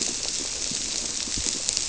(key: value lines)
label: biophony
recorder: SoundTrap 300